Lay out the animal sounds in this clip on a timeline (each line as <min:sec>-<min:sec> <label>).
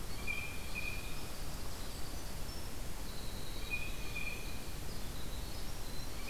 0:00.0-0:06.3 Winter Wren (Troglodytes hiemalis)
0:00.0-0:01.3 Blue Jay (Cyanocitta cristata)
0:03.5-0:04.7 Blue Jay (Cyanocitta cristata)